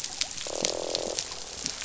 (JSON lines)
{"label": "biophony, croak", "recorder": "SoundTrap 500"}